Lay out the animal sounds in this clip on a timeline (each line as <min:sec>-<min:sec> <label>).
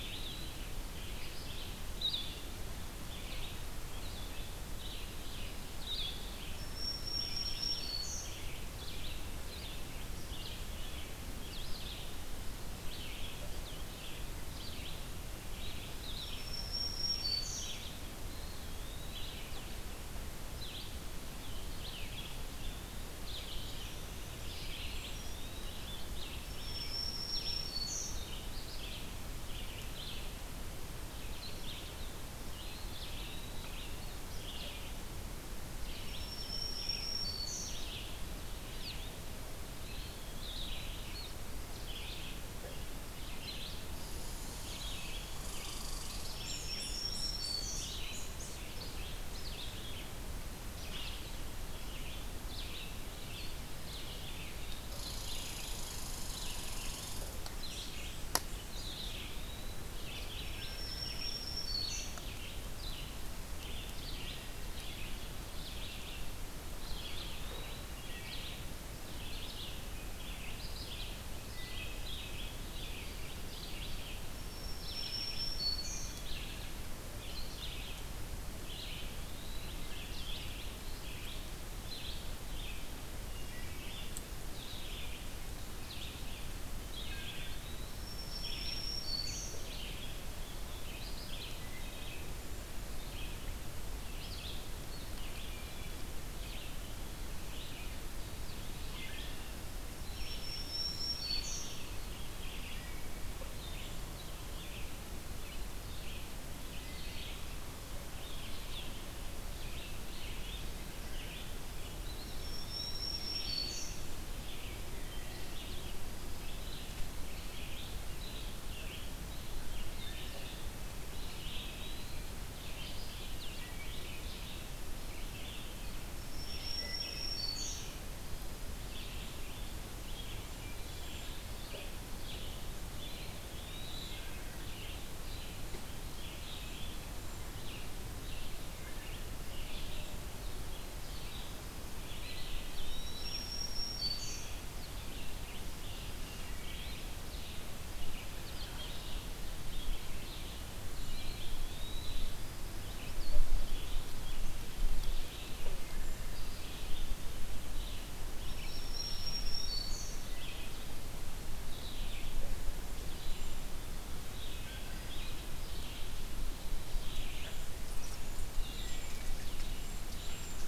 0:00.0-0:00.7 Eastern Wood-Pewee (Contopus virens)
0:00.0-0:06.2 Blue-headed Vireo (Vireo solitarius)
0:00.0-0:33.2 Red-eyed Vireo (Vireo olivaceus)
0:06.4-0:08.4 Black-throated Green Warbler (Setophaga virens)
0:15.9-0:17.9 Black-throated Green Warbler (Setophaga virens)
0:18.1-0:19.3 Eastern Wood-Pewee (Contopus virens)
0:24.7-0:25.8 Eastern Wood-Pewee (Contopus virens)
0:26.5-0:28.2 Black-throated Green Warbler (Setophaga virens)
0:32.5-0:33.7 Eastern Wood-Pewee (Contopus virens)
0:33.6-1:31.6 Red-eyed Vireo (Vireo olivaceus)
0:35.9-0:37.9 Black-throated Green Warbler (Setophaga virens)
0:39.6-0:41.0 Eastern Wood-Pewee (Contopus virens)
0:44.0-0:48.6 Red Squirrel (Tamiasciurus hudsonicus)
0:46.4-0:47.9 Black-throated Green Warbler (Setophaga virens)
0:46.9-0:48.4 Eastern Wood-Pewee (Contopus virens)
0:54.9-0:57.4 Red Squirrel (Tamiasciurus hudsonicus)
0:58.7-0:59.9 Eastern Wood-Pewee (Contopus virens)
1:00.5-1:01.0 Wood Thrush (Hylocichla mustelina)
1:00.5-1:02.2 Black-throated Green Warbler (Setophaga virens)
1:04.0-1:04.7 Wood Thrush (Hylocichla mustelina)
1:06.7-1:08.1 Eastern Wood-Pewee (Contopus virens)
1:07.9-1:08.5 Wood Thrush (Hylocichla mustelina)
1:11.4-1:12.1 Wood Thrush (Hylocichla mustelina)
1:14.1-1:16.2 Black-throated Green Warbler (Setophaga virens)
1:18.7-1:19.8 Eastern Wood-Pewee (Contopus virens)
1:23.3-1:23.8 Wood Thrush (Hylocichla mustelina)
1:26.7-1:28.0 Eastern Wood-Pewee (Contopus virens)
1:26.7-1:27.6 Wood Thrush (Hylocichla mustelina)
1:28.0-1:29.6 Black-throated Green Warbler (Setophaga virens)
1:31.5-1:32.3 Wood Thrush (Hylocichla mustelina)
1:32.9-2:30.7 Red-eyed Vireo (Vireo olivaceus)
1:35.4-1:36.2 Wood Thrush (Hylocichla mustelina)
1:39.9-1:41.1 Eastern Wood-Pewee (Contopus virens)
1:40.0-1:41.7 Black-throated Green Warbler (Setophaga virens)
1:52.0-1:53.1 Eastern Wood-Pewee (Contopus virens)
1:52.2-1:54.0 Black-throated Green Warbler (Setophaga virens)
2:01.0-2:02.4 Eastern Wood-Pewee (Contopus virens)
2:03.4-2:04.1 Wood Thrush (Hylocichla mustelina)
2:06.2-2:07.9 Black-throated Green Warbler (Setophaga virens)
2:06.7-2:07.3 Wood Thrush (Hylocichla mustelina)
2:10.7-2:11.4 Cedar Waxwing (Bombycilla cedrorum)
2:13.1-2:14.1 Eastern Wood-Pewee (Contopus virens)
2:22.1-2:23.2 Eastern Wood-Pewee (Contopus virens)
2:22.8-2:24.5 Black-throated Green Warbler (Setophaga virens)
2:26.2-2:27.0 Wood Thrush (Hylocichla mustelina)
2:31.0-2:32.2 Eastern Wood-Pewee (Contopus virens)
2:31.0-2:50.7 Red-eyed Vireo (Vireo olivaceus)
2:38.4-2:40.3 Black-throated Green Warbler (Setophaga virens)
2:43.2-2:43.8 Cedar Waxwing (Bombycilla cedrorum)
2:44.6-2:45.2 Wood Thrush (Hylocichla mustelina)
2:47.2-2:50.7 Cedar Waxwing (Bombycilla cedrorum)
2:48.5-2:49.3 Wood Thrush (Hylocichla mustelina)